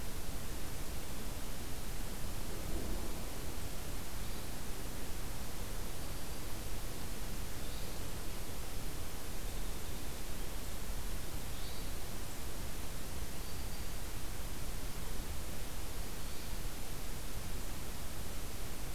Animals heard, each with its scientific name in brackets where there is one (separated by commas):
Hermit Thrush (Catharus guttatus), Black-throated Green Warbler (Setophaga virens)